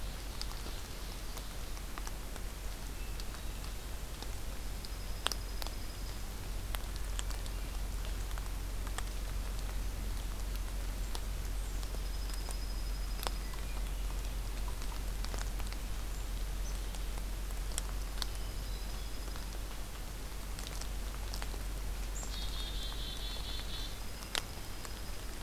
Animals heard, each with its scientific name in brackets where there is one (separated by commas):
Hermit Thrush (Catharus guttatus), Black-capped Chickadee (Poecile atricapillus), Ovenbird (Seiurus aurocapilla), Dark-eyed Junco (Junco hyemalis)